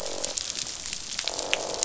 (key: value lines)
label: biophony, croak
recorder: SoundTrap 500